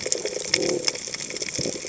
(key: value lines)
label: biophony
recorder: HydroMoth